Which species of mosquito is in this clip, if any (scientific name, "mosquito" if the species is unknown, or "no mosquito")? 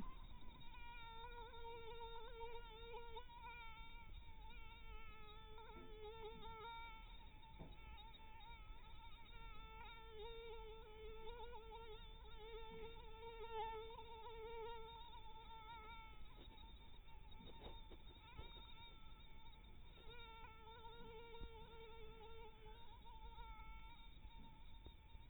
mosquito